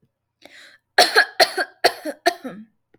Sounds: Cough